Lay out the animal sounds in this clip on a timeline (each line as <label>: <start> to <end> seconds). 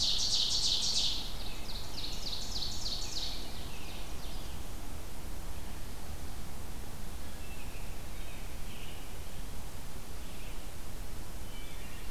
Ovenbird (Seiurus aurocapilla): 0.0 to 4.6 seconds
American Robin (Turdus migratorius): 1.3 to 2.4 seconds
American Robin (Turdus migratorius): 7.0 to 9.3 seconds
Wood Thrush (Hylocichla mustelina): 11.4 to 11.9 seconds